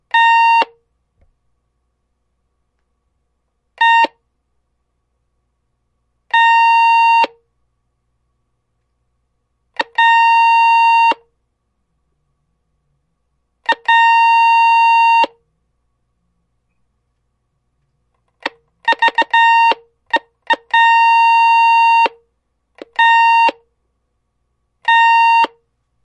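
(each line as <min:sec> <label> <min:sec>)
0:00.0 An electronic beep with a short, high-pitched tone. 0:00.7
0:03.7 An electronic beep with a short, high-pitched tone. 0:04.1
0:06.3 An electronic beep with a short, high-pitched tone. 0:07.3
0:09.7 An electronic beep with a short, high-pitched tone. 0:11.2
0:13.6 An electronic beep with a short, high-pitched tone. 0:15.4
0:18.4 An electronic beep with a stuttered pattern. 0:22.1
0:22.7 An electronic beep with a short, high-pitched tone. 0:23.6
0:24.8 An electronic beep with a short, high-pitched tone. 0:25.5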